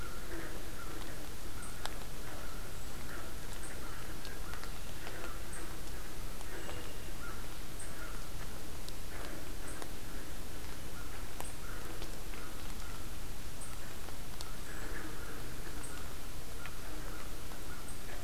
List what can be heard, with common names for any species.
American Crow